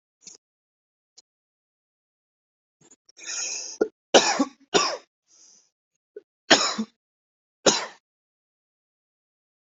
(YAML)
expert_labels:
- quality: good
  cough_type: dry
  dyspnea: true
  wheezing: false
  stridor: true
  choking: false
  congestion: false
  nothing: false
  diagnosis: COVID-19
  severity: mild
age: 22
gender: male
respiratory_condition: false
fever_muscle_pain: false
status: symptomatic